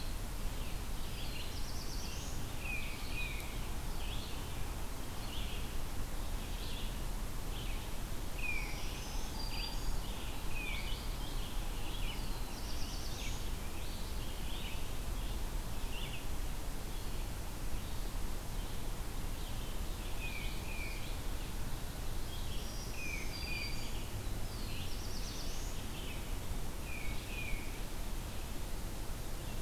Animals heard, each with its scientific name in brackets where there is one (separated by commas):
Tufted Titmouse (Baeolophus bicolor), Black-throated Green Warbler (Setophaga virens), Black-throated Blue Warbler (Setophaga caerulescens), Red-eyed Vireo (Vireo olivaceus)